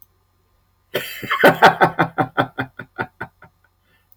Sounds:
Laughter